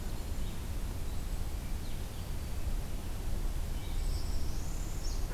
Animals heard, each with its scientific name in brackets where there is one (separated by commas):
Red-eyed Vireo (Vireo olivaceus), Northern Parula (Setophaga americana)